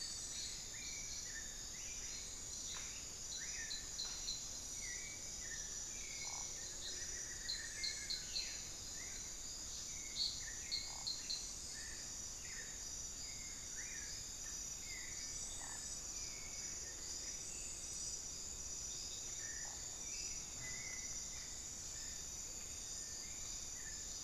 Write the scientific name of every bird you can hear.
Dendrocolaptes certhia, Geotrygon montana, Momotus momota, Crypturellus cinereus